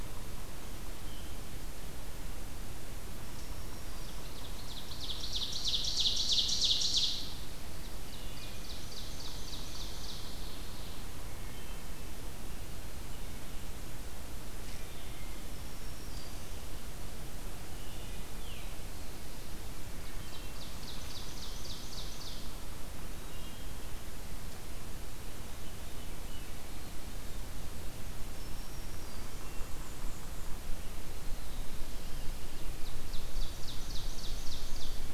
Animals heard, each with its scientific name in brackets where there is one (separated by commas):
Veery (Catharus fuscescens), Black-throated Green Warbler (Setophaga virens), Ovenbird (Seiurus aurocapilla), Wood Thrush (Hylocichla mustelina), Black-throated Blue Warbler (Setophaga caerulescens), Black-and-white Warbler (Mniotilta varia)